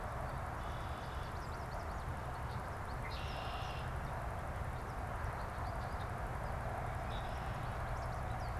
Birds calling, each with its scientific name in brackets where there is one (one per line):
Red-winged Blackbird (Agelaius phoeniceus)
American Goldfinch (Spinus tristis)